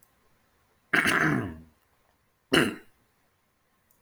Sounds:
Throat clearing